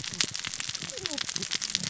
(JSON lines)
{"label": "biophony, cascading saw", "recorder": "SoundTrap 600 or HydroMoth"}